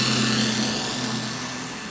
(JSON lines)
{"label": "anthrophony, boat engine", "recorder": "SoundTrap 500"}